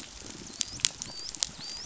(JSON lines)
{"label": "biophony, dolphin", "recorder": "SoundTrap 500"}